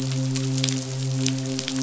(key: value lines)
label: biophony, midshipman
recorder: SoundTrap 500